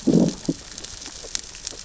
{"label": "biophony, growl", "recorder": "SoundTrap 600 or HydroMoth"}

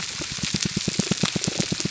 {"label": "biophony, pulse", "recorder": "SoundTrap 300"}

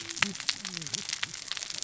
{"label": "biophony, cascading saw", "recorder": "SoundTrap 600 or HydroMoth"}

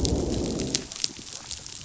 {"label": "biophony, growl", "recorder": "SoundTrap 500"}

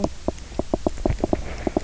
{"label": "biophony, knock", "recorder": "SoundTrap 300"}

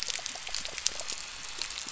{"label": "anthrophony, boat engine", "recorder": "SoundTrap 300"}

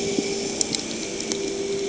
{"label": "anthrophony, boat engine", "recorder": "HydroMoth"}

